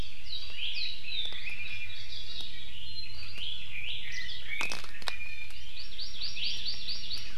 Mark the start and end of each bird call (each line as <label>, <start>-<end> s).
Iiwi (Drepanis coccinea), 1.3-2.1 s
Red-billed Leiothrix (Leiothrix lutea), 3.0-4.8 s
Iiwi (Drepanis coccinea), 5.1-5.5 s
Hawaii Amakihi (Chlorodrepanis virens), 5.5-7.3 s